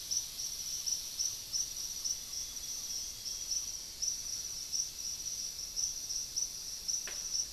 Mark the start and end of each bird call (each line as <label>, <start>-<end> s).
Thrush-like Wren (Campylorhynchus turdinus), 0.0-4.9 s
Amazonian Grosbeak (Cyanoloxia rothschildii), 1.8-4.3 s